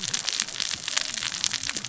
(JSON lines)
{"label": "biophony, cascading saw", "recorder": "SoundTrap 600 or HydroMoth"}